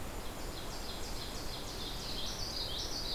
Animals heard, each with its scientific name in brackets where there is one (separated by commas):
Common Yellowthroat (Geothlypis trichas), Ovenbird (Seiurus aurocapilla), Golden-crowned Kinglet (Regulus satrapa), Blue-headed Vireo (Vireo solitarius), Least Flycatcher (Empidonax minimus)